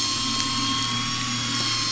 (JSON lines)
{"label": "anthrophony, boat engine", "recorder": "SoundTrap 500"}